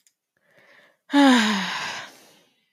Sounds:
Sigh